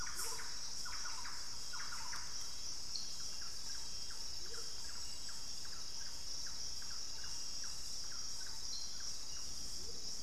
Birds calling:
Amazonian Motmot (Momotus momota), Thrush-like Wren (Campylorhynchus turdinus)

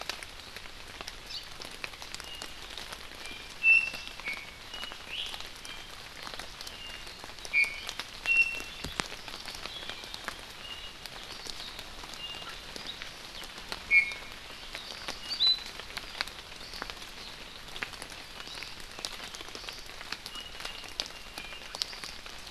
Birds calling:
Hawaii Amakihi (Chlorodrepanis virens), Iiwi (Drepanis coccinea)

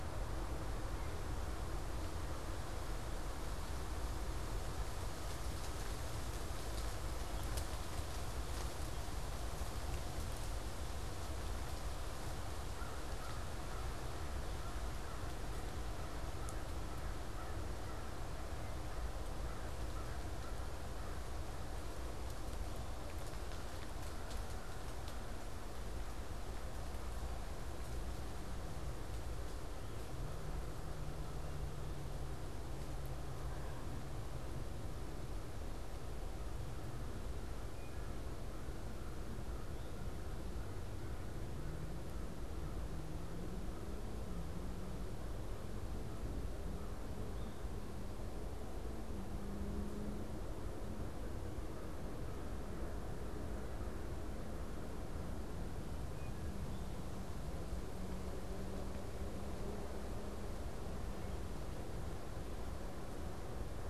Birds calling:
American Crow (Corvus brachyrhynchos)

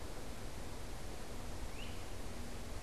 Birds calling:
Great Crested Flycatcher (Myiarchus crinitus)

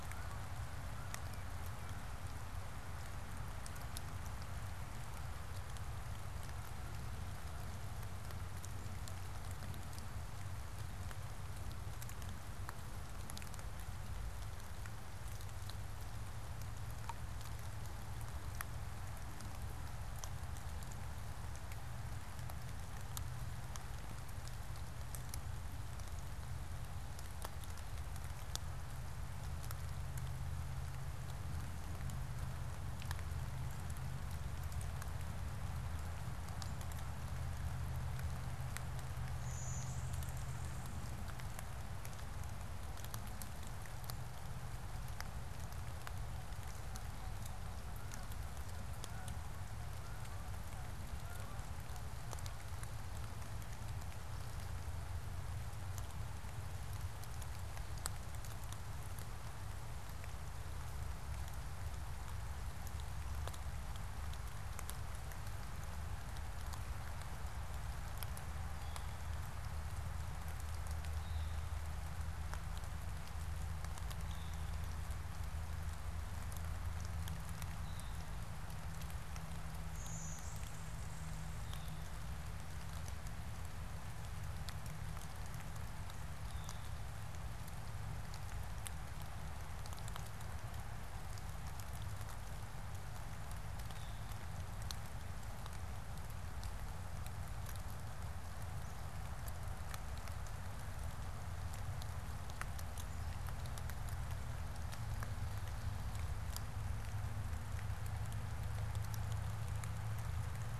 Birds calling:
unidentified bird, Blue-winged Warbler (Vermivora cyanoptera)

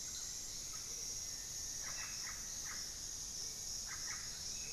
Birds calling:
Hauxwell's Thrush (Turdus hauxwelli), Amazonian Motmot (Momotus momota), Russet-backed Oropendola (Psarocolius angustifrons), Black-faced Antthrush (Formicarius analis)

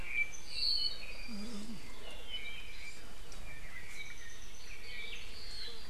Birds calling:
Apapane (Himatione sanguinea)

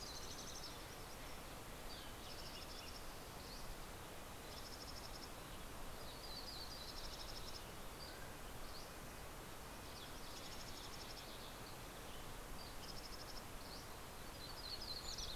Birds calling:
Yellow-rumped Warbler (Setophaga coronata), Dusky Flycatcher (Empidonax oberholseri), Mountain Quail (Oreortyx pictus), Red-breasted Nuthatch (Sitta canadensis), Mountain Chickadee (Poecile gambeli)

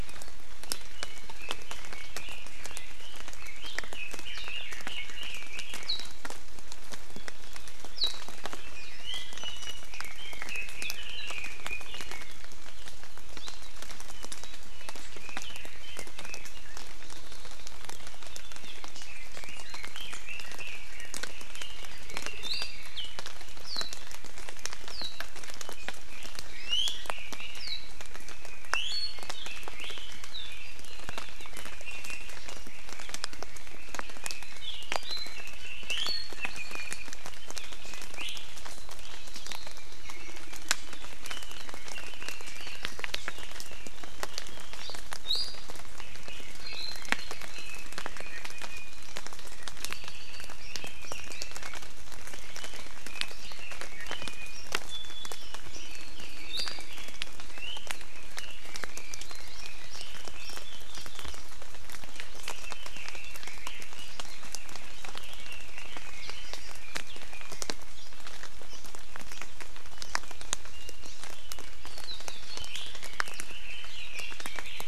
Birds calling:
Red-billed Leiothrix (Leiothrix lutea), Apapane (Himatione sanguinea), Iiwi (Drepanis coccinea), Hawaii Amakihi (Chlorodrepanis virens)

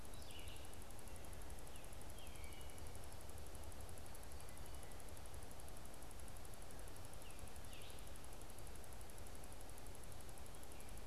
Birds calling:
Tufted Titmouse (Baeolophus bicolor), Red-eyed Vireo (Vireo olivaceus)

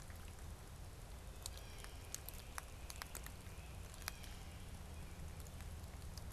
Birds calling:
Blue Jay (Cyanocitta cristata), Great Crested Flycatcher (Myiarchus crinitus)

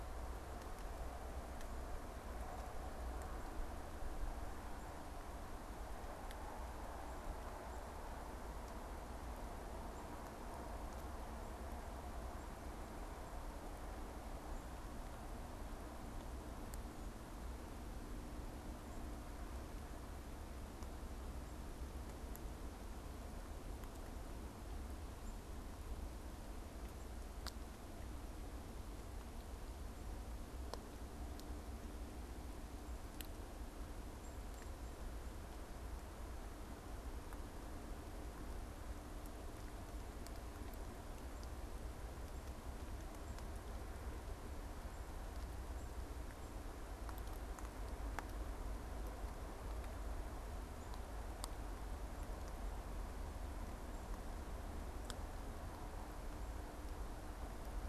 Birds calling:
Black-capped Chickadee (Poecile atricapillus)

